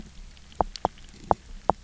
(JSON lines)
{"label": "biophony, knock", "recorder": "SoundTrap 300"}